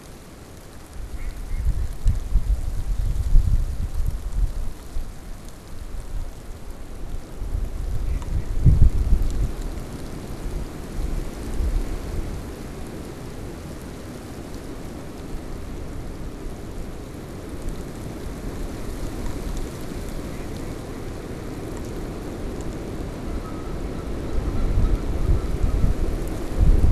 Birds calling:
Mallard (Anas platyrhynchos), Canada Goose (Branta canadensis)

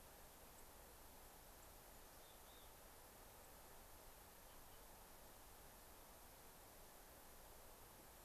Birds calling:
White-crowned Sparrow (Zonotrichia leucophrys), Mountain Chickadee (Poecile gambeli)

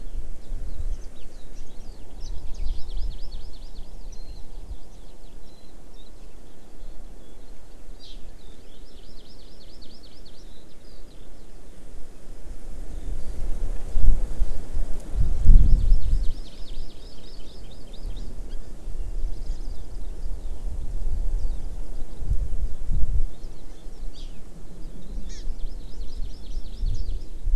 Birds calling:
Hawaii Amakihi (Chlorodrepanis virens), Eurasian Skylark (Alauda arvensis), Warbling White-eye (Zosterops japonicus)

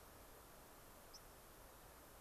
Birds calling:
White-crowned Sparrow (Zonotrichia leucophrys)

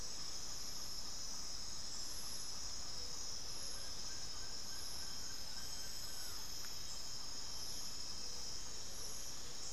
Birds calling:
Amazonian Motmot (Momotus momota), Plain-winged Antshrike (Thamnophilus schistaceus)

